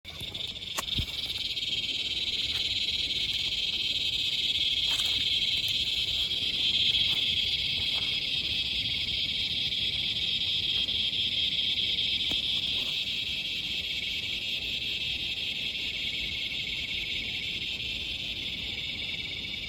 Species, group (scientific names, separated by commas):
Henicopsaltria eydouxii, Cicadidae